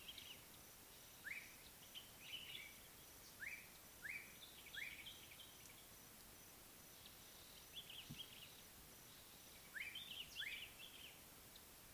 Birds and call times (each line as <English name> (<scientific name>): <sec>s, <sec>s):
Common Bulbul (Pycnonotus barbatus): 7.9s, 10.2s
Slate-colored Boubou (Laniarius funebris): 9.7s